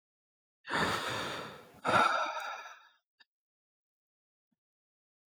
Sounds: Sniff